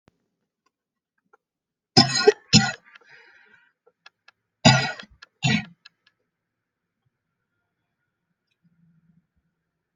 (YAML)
expert_labels:
- quality: ok
  cough_type: dry
  dyspnea: false
  wheezing: false
  stridor: false
  choking: false
  congestion: false
  nothing: true
  diagnosis: upper respiratory tract infection
  severity: mild
age: 34
gender: female
respiratory_condition: true
fever_muscle_pain: false
status: symptomatic